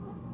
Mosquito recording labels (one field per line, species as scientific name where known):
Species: Anopheles merus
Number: one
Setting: insect culture